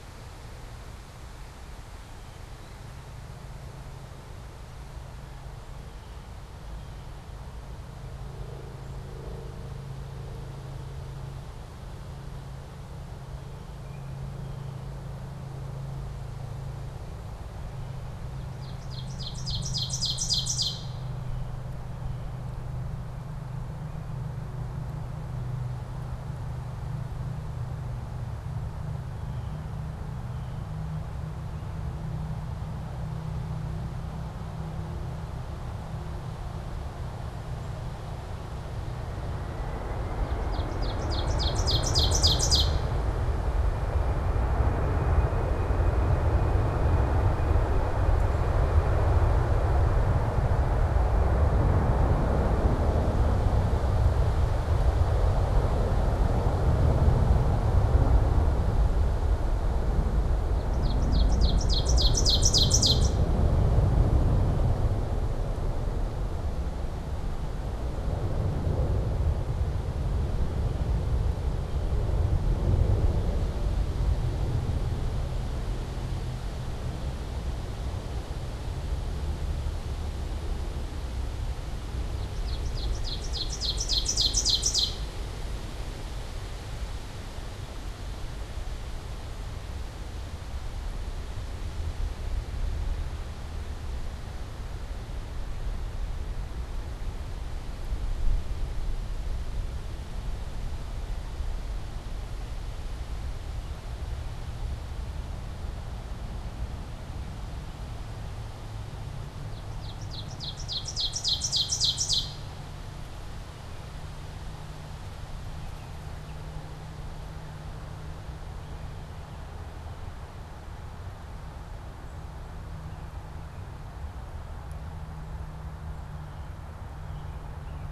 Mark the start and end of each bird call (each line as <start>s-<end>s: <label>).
2.4s-7.3s: Blue Jay (Cyanocitta cristata)
13.0s-14.9s: Blue Jay (Cyanocitta cristata)
18.2s-21.2s: Ovenbird (Seiurus aurocapilla)
21.0s-22.5s: Blue Jay (Cyanocitta cristata)
28.8s-32.0s: Blue Jay (Cyanocitta cristata)
40.1s-43.0s: Ovenbird (Seiurus aurocapilla)
60.3s-63.5s: Ovenbird (Seiurus aurocapilla)
81.9s-85.2s: Ovenbird (Seiurus aurocapilla)
109.3s-112.8s: Ovenbird (Seiurus aurocapilla)
115.4s-116.5s: Baltimore Oriole (Icterus galbula)
122.7s-127.5s: Blue Jay (Cyanocitta cristata)